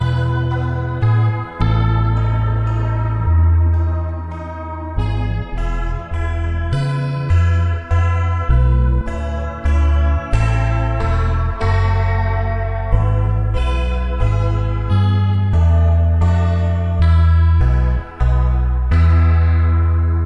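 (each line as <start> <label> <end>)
0.0 An electric guitar plays a steady, slow tune with a drum-like sound. 20.3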